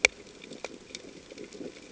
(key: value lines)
label: ambient
recorder: HydroMoth